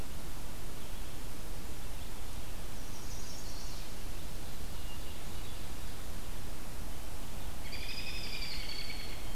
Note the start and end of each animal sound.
[2.58, 3.92] Chestnut-sided Warbler (Setophaga pensylvanica)
[7.47, 9.35] American Robin (Turdus migratorius)

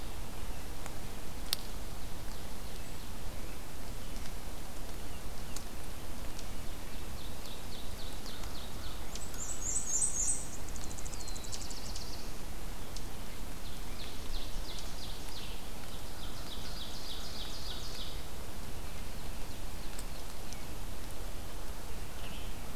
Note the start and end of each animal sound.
[6.95, 9.08] Ovenbird (Seiurus aurocapilla)
[8.97, 10.58] Black-and-white Warbler (Mniotilta varia)
[10.43, 11.95] unidentified call
[10.68, 12.66] Black-throated Blue Warbler (Setophaga caerulescens)
[13.37, 18.19] Ovenbird (Seiurus aurocapilla)

